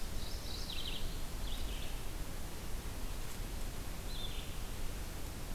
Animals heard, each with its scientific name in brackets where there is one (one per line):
Mourning Warbler (Geothlypis philadelphia)
Red-eyed Vireo (Vireo olivaceus)